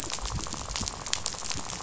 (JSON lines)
{"label": "biophony, rattle", "recorder": "SoundTrap 500"}